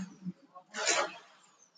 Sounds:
Sneeze